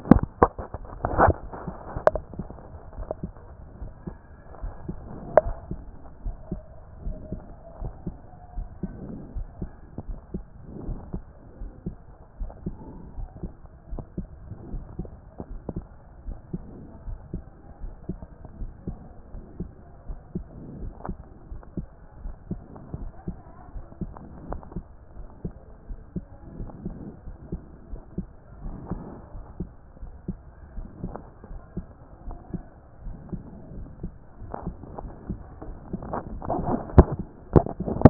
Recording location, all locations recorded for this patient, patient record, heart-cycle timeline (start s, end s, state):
aortic valve (AV)
aortic valve (AV)+pulmonary valve (PV)+tricuspid valve (TV)+mitral valve (MV)
#Age: Child
#Sex: Female
#Height: 152.0 cm
#Weight: 41.0 kg
#Pregnancy status: False
#Murmur: Absent
#Murmur locations: nan
#Most audible location: nan
#Systolic murmur timing: nan
#Systolic murmur shape: nan
#Systolic murmur grading: nan
#Systolic murmur pitch: nan
#Systolic murmur quality: nan
#Diastolic murmur timing: nan
#Diastolic murmur shape: nan
#Diastolic murmur grading: nan
#Diastolic murmur pitch: nan
#Diastolic murmur quality: nan
#Outcome: Abnormal
#Campaign: 2014 screening campaign
0.00	0.30	S1
0.30	0.40	systole
0.40	0.52	S2
0.52	1.02	diastole
1.02	1.38	S1
1.38	1.62	systole
1.62	1.76	S2
1.76	2.12	diastole
2.12	2.24	S1
2.24	2.38	systole
2.38	2.52	S2
2.52	2.96	diastole
2.96	3.08	S1
3.08	3.22	systole
3.22	3.34	S2
3.34	3.80	diastole
3.80	3.92	S1
3.92	4.08	systole
4.08	4.18	S2
4.18	4.62	diastole
4.62	4.74	S1
4.74	4.86	systole
4.86	4.96	S2
4.96	5.26	diastole
5.26	5.56	S1
5.56	5.70	systole
5.70	5.86	S2
5.86	6.24	diastole
6.24	6.38	S1
6.38	6.50	systole
6.50	6.62	S2
6.62	7.02	diastole
7.02	7.18	S1
7.18	7.30	systole
7.30	7.42	S2
7.42	7.80	diastole
7.80	7.94	S1
7.94	8.08	systole
8.08	8.18	S2
8.18	8.56	diastole
8.56	8.68	S1
8.68	8.84	systole
8.84	8.98	S2
8.98	9.34	diastole
9.34	9.48	S1
9.48	9.60	systole
9.60	9.70	S2
9.70	10.08	diastole
10.08	10.18	S1
10.18	10.34	systole
10.34	10.44	S2
10.44	10.78	diastole
10.78	11.00	S1
11.00	11.12	systole
11.12	11.22	S2
11.22	11.60	diastole
11.60	11.72	S1
11.72	11.86	systole
11.86	11.96	S2
11.96	12.40	diastole
12.40	12.52	S1
12.52	12.64	systole
12.64	12.78	S2
12.78	13.16	diastole
13.16	13.28	S1
13.28	13.42	systole
13.42	13.52	S2
13.52	13.92	diastole
13.92	14.04	S1
14.04	14.18	systole
14.18	14.28	S2
14.28	14.68	diastole
14.68	14.84	S1
14.84	15.00	systole
15.00	15.10	S2
15.10	15.52	diastole
15.52	15.60	S1
15.60	15.74	systole
15.74	15.86	S2
15.86	16.26	diastole
16.26	16.38	S1
16.38	16.52	systole
16.52	16.66	S2
16.66	17.06	diastole
17.06	17.18	S1
17.18	17.32	systole
17.32	17.44	S2
17.44	17.84	diastole
17.84	17.94	S1
17.94	18.10	systole
18.10	18.20	S2
18.20	18.60	diastole
18.60	18.72	S1
18.72	18.86	systole
18.86	18.98	S2
18.98	19.36	diastole
19.36	19.42	S1
19.42	19.58	systole
19.58	19.70	S2
19.70	20.10	diastole
20.10	20.18	S1
20.18	20.34	systole
20.34	20.44	S2
20.44	20.72	diastole
20.72	20.92	S1
20.92	21.06	systole
21.06	21.18	S2
21.18	21.52	diastole
21.52	21.60	S1
21.60	21.76	systole
21.76	21.86	S2
21.86	22.22	diastole
22.22	22.34	S1
22.34	22.50	systole
22.50	22.62	S2
22.62	22.98	diastole
22.98	23.12	S1
23.12	23.26	systole
23.26	23.36	S2
23.36	23.76	diastole
23.76	23.84	S1
23.84	24.00	systole
24.00	24.14	S2
24.14	24.48	diastole
24.48	24.60	S1
24.60	24.74	systole
24.74	24.84	S2
24.84	25.20	diastole
25.20	25.26	S1
25.26	25.44	systole
25.44	25.52	S2
25.52	25.90	diastole
25.90	25.98	S1
25.98	26.14	systole
26.14	26.24	S2
26.24	26.58	diastole
26.58	26.70	S1
26.70	26.84	systole
26.84	26.98	S2
26.98	27.28	diastole
27.28	27.36	S1
27.36	27.50	systole
27.50	27.60	S2
27.60	27.92	diastole
27.92	28.00	S1
28.00	28.16	systole
28.16	28.26	S2
28.26	28.62	diastole
28.62	28.78	S1
28.78	28.92	systole
28.92	29.08	S2
29.08	29.36	diastole
29.36	29.44	S1
29.44	29.58	systole
29.58	29.68	S2
29.68	30.04	diastole
30.04	30.12	S1
30.12	30.28	systole
30.28	30.38	S2
30.38	30.76	diastole
30.76	30.86	S1
30.86	31.02	systole
31.02	31.16	S2
31.16	31.52	diastole
31.52	31.60	S1
31.60	31.78	systole
31.78	31.86	S2
31.86	32.26	diastole
32.26	32.36	S1
32.36	32.52	systole
32.52	32.64	S2
32.64	33.04	diastole
33.04	33.16	S1
33.16	33.32	systole
33.32	33.44	S2
33.44	33.74	diastole
33.74	33.86	S1
33.86	34.02	systole
34.02	34.12	S2
34.12	34.44	diastole
34.44	34.54	S1
34.54	34.66	systole
34.66	34.76	S2
34.76	35.02	diastole
35.02	35.12	S1
35.12	35.28	systole
35.28	35.38	S2
35.38	35.68	diastole
35.68	35.78	S1
35.78	36.02	systole
36.02	36.22	S2
36.22	36.48	diastole
36.48	36.84	S1
36.84	36.94	systole
36.94	37.26	S2
37.26	37.54	diastole
37.54	37.66	S1
37.66	37.80	systole
37.80	38.10	S2